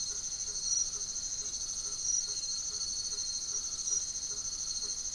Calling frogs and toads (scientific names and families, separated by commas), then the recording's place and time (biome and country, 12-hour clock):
Boana faber (Hylidae), Scinax alter (Hylidae)
Atlantic Forest, Brazil, 8:30pm